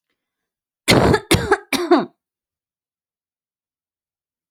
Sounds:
Cough